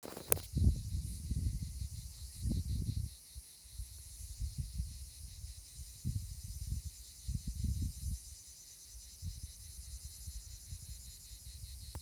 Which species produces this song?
Cicada orni